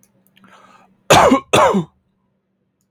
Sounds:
Cough